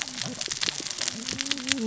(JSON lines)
{"label": "biophony, cascading saw", "recorder": "SoundTrap 600 or HydroMoth"}